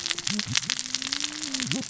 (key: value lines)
label: biophony, cascading saw
recorder: SoundTrap 600 or HydroMoth